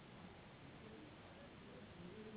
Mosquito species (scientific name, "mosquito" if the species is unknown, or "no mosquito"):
Anopheles gambiae s.s.